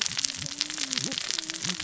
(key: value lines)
label: biophony, cascading saw
recorder: SoundTrap 600 or HydroMoth